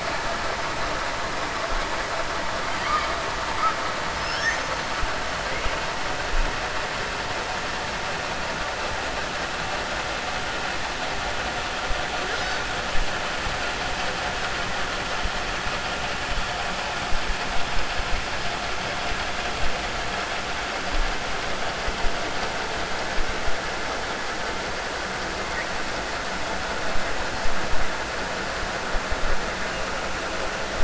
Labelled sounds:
2.7	3.1	killer whale, 1.0 to 4.9 kHz

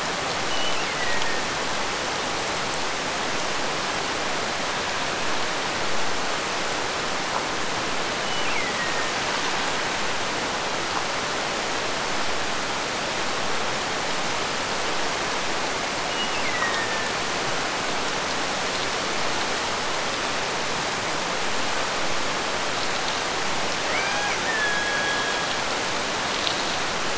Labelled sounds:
0.5	1.6	killer whale, Bigg's (transient), Gulf of Alaska transient, 1.7 to 3.1 kHz
8.2	9.4	killer whale, Bigg's (transient), Gulf of Alaska transient, 1.7 to 3.1 kHz
16.0	17.3	killer whale, Bigg's (transient), Gulf of Alaska transient, 1.6 to 3.0 kHz
23.9	25.6	killer whale, Bigg's (transient), Gulf of Alaska transient, 0.51 to 3.5 kHz

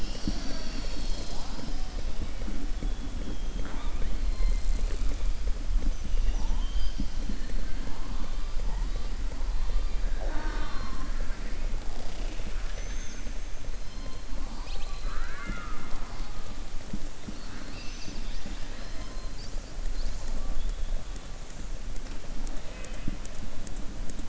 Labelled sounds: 3.5	4.1	killer whale, southern resident, 0.46 to 3.8 kHz

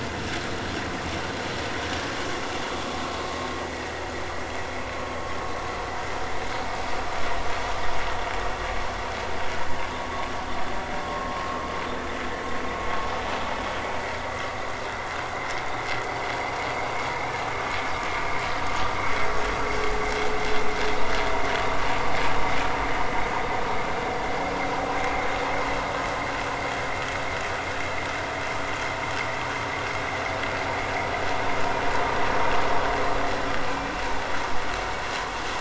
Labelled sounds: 3.6	3.9	vessel noise, 1.8 to 2.0 kHz
11.0	11.4	vessel noise, 1.0 to 1.2 kHz

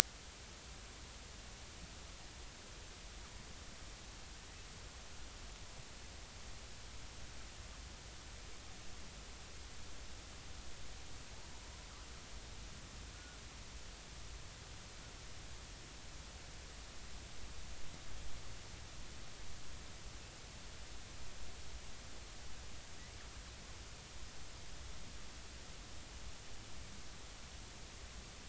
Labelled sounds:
13.1	13.4	killer whale, northern resident, 1.4 to 1.5 kHz

